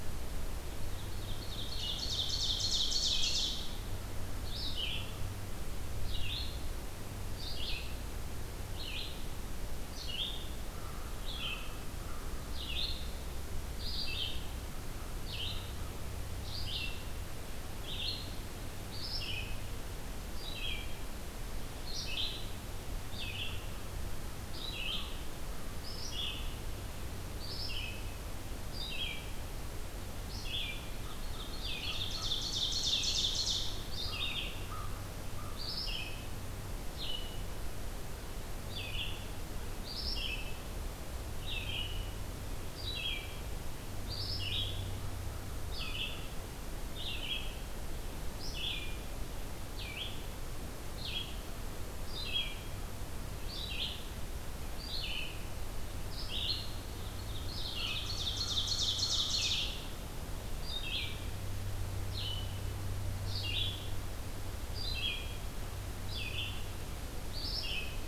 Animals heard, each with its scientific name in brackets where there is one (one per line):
Ovenbird (Seiurus aurocapilla)
Red-eyed Vireo (Vireo olivaceus)
American Crow (Corvus brachyrhynchos)